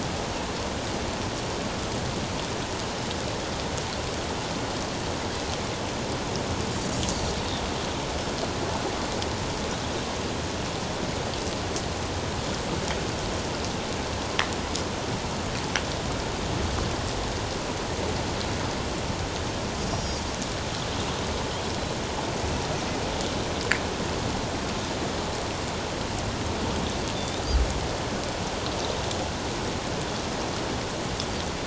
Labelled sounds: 7.0	7.3	Pacific white-sided dolphin, 5.5 to 6.3 kHz
19.8	20.3	Pacific white-sided dolphin, 4.5 to 6.9 kHz
27.1	27.4	Pacific white-sided dolphin, 3.5 to 3.8 kHz

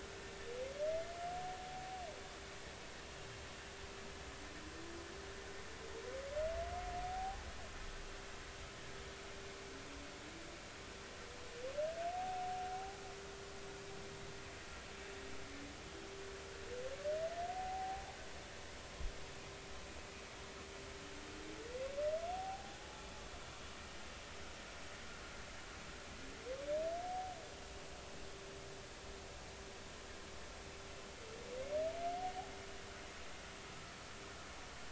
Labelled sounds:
7.0	7.5	humpback whale, 0.80 to 0.90 kHz
12.1	13.0	humpback whale, 0.80 to 0.86 kHz
17.5	18.2	humpback whale, 0.80 to 0.90 kHz
22.3	23.1	humpback whale, 0.80 to 0.90 kHz

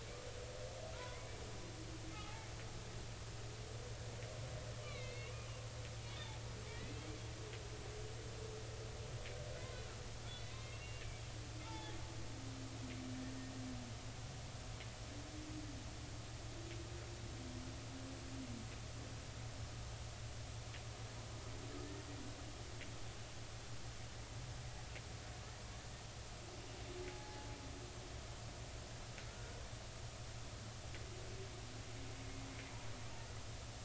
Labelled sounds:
1.0	1.4	humpback whale, 0.93 to 2.4 kHz
2.2	2.5	humpback whale, 2.1 to 2.3 kHz
4.8	6.3	humpback whale, 2.0 to 3.0 kHz
6.7	7.0	humpback whale, 1.8 to 2.1 kHz
10.3	11.0	humpback whale, 2.0 to 4.1 kHz
11.6	12.0	humpback whale, 0.80 to 3.6 kHz
21.8	22.0	humpback whale, 1.7 to 1.9 kHz
27.0	27.5	humpback whale, 0.80 to 0.90 kHz
29.3	29.6	humpback whale, 1.3 to 1.5 kHz

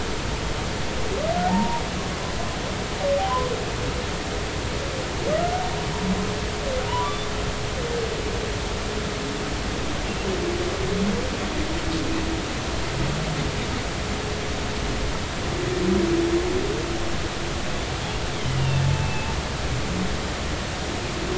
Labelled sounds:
1.5	1.8	humpback whale, 0.80 to 0.99 kHz
5.4	5.6	humpback whale, 1.3 to 1.5 kHz
7.0	7.3	humpback whale, 3.5 to 3.6 kHz
18.6	19.3	humpback whale, 2.6 to 2.9 kHz

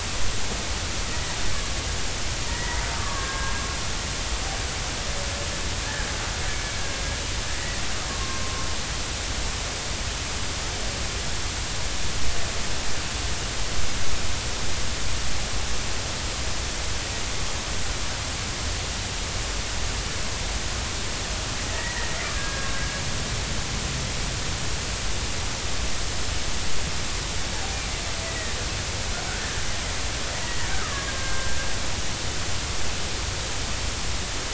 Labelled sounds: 2.5	3.5	killer whale, Bigg's (transient), 1.0 to 2.0 kHz
5.8	6.1	killer whale, Bigg's (transient), 1.5 to 1.9 kHz
8.1	8.6	killer whale, Bigg's (transient), 0.99 to 1.2 kHz
21.7	23.0	killer whale, Bigg's (transient), 1.5 to 2.0 kHz
28.2	28.5	killer whale, Bigg's (transient), 1.7 to 2.0 kHz
29.4	31.6	killer whale, Bigg's (transient), 1.0 to 2.0 kHz

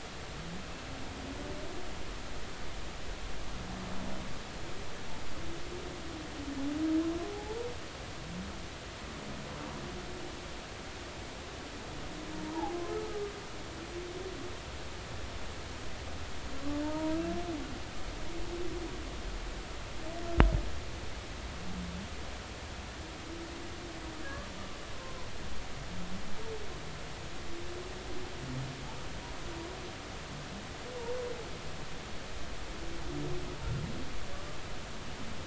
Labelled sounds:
7.3	7.6	humpback whale, 0.80 to 0.96 kHz
12.5	13.3	humpback whale, 0.80 to 1.3 kHz
16.8	17.2	humpback whale, 0.86 to 1.0 kHz
24.9	25.3	humpback whale, 0.96 to 1.1 kHz

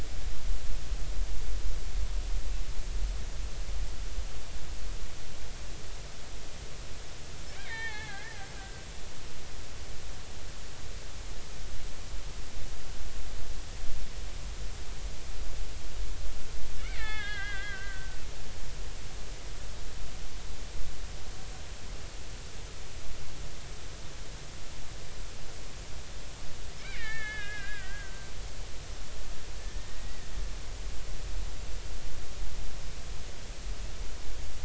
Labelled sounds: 7.5	8.8	killer whale, Bigg's (transient), 0.80 to 3.8 kHz
16.8	18.2	killer whale, Bigg's (transient), 0.80 to 3.5 kHz
26.8	28.3	killer whale, Bigg's (transient), 1.2 to 3.5 kHz
29.6	30.3	killer whale, Bigg's (transient), 1.7 to 2.0 kHz

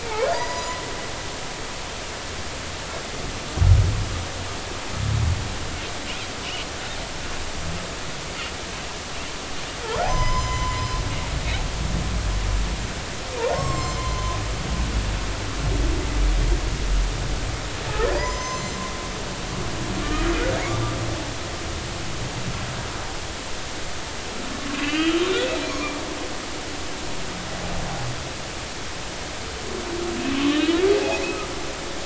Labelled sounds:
0.0	0.8	humpback whale, 0.90 to 7.1 kHz
10.0	10.8	humpback whale, 0.96 to 7.2 kHz
13.5	14.4	humpback whale, 0.96 to 7.7 kHz
18.2	18.8	humpback whale, 0.90 to 7.3 kHz
24.7	25.4	humpback whale, 2.3 to 3.8 kHz
30.4	30.8	humpback whale, 1.0 to 1.9 kHz

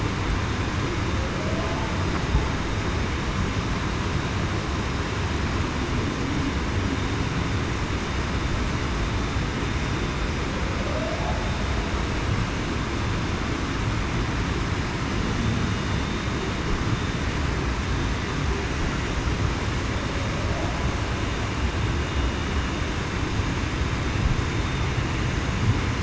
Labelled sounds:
1.4	1.8	humpback whale, 0.56 to 0.75 kHz
10.8	11.2	humpback whale, 0.56 to 0.70 kHz

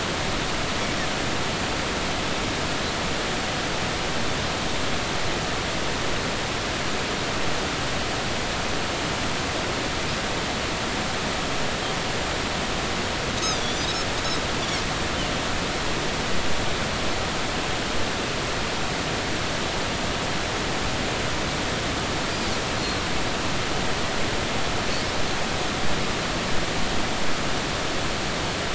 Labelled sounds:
14.4	14.8	Pacific white-sided dolphin, 3.3 to 3.9 kHz
22.8	23.0	Pacific white-sided dolphin, 4.1 to 4.3 kHz

